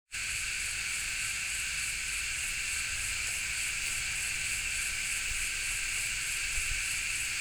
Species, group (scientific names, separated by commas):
Psaltoda moerens, Cicadidae